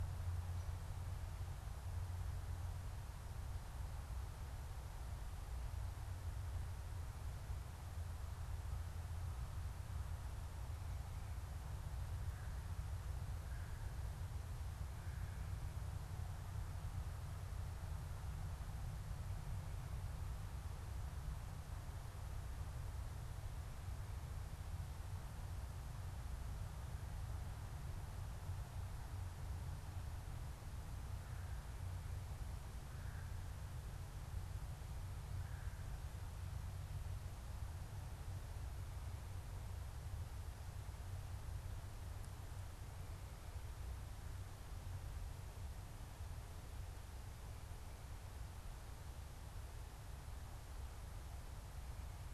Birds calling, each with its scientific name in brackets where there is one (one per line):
Red-bellied Woodpecker (Melanerpes carolinus)